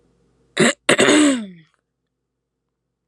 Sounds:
Throat clearing